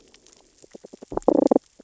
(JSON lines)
{"label": "biophony, damselfish", "recorder": "SoundTrap 600 or HydroMoth"}